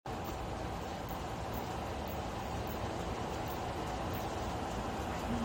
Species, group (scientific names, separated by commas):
Phaneroptera nana, Orthoptera